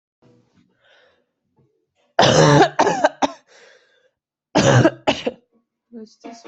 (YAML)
expert_labels:
- quality: good
  cough_type: dry
  dyspnea: false
  wheezing: false
  stridor: false
  choking: false
  congestion: false
  nothing: true
  diagnosis: lower respiratory tract infection
  severity: mild
age: 23
gender: female
respiratory_condition: false
fever_muscle_pain: false
status: healthy